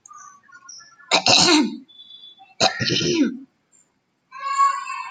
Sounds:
Throat clearing